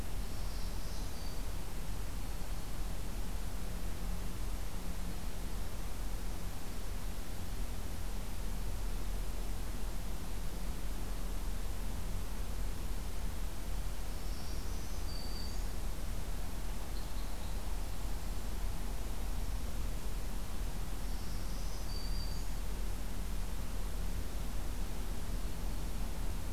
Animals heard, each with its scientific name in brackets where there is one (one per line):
Red Crossbill (Loxia curvirostra)
Black-throated Green Warbler (Setophaga virens)
Black-throated Blue Warbler (Setophaga caerulescens)